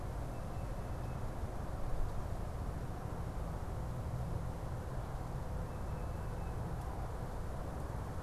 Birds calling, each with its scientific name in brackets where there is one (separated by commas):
Tufted Titmouse (Baeolophus bicolor)